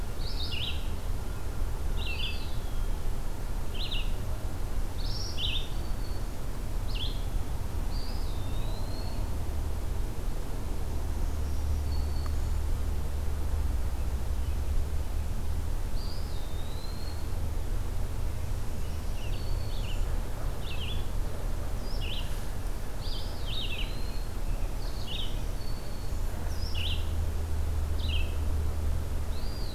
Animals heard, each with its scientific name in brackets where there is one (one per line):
Red-eyed Vireo (Vireo olivaceus)
Eastern Wood-Pewee (Contopus virens)
Black-throated Green Warbler (Setophaga virens)